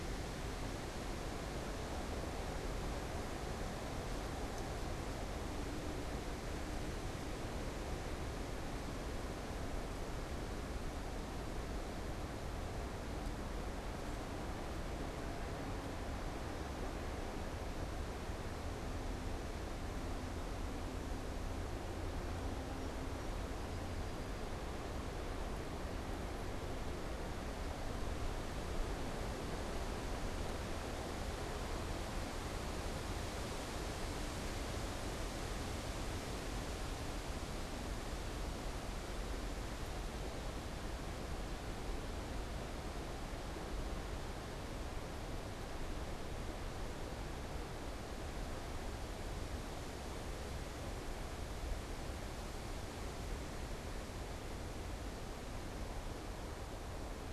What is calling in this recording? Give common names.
Song Sparrow